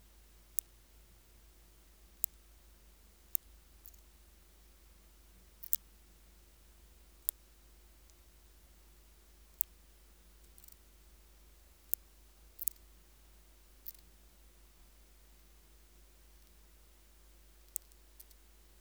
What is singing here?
Phaneroptera nana, an orthopteran